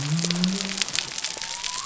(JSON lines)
{"label": "biophony", "recorder": "SoundTrap 300"}